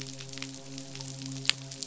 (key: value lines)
label: biophony, midshipman
recorder: SoundTrap 500